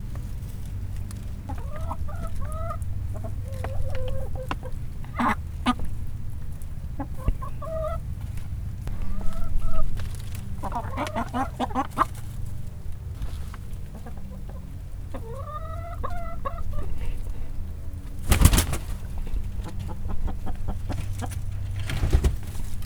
what makes the flapping sound?
chicken